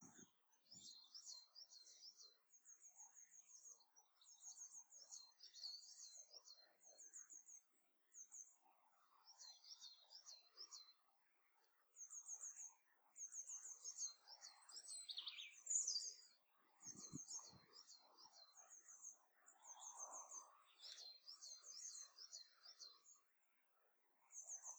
What things are making the little sound?
birds